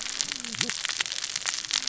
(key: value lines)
label: biophony, cascading saw
recorder: SoundTrap 600 or HydroMoth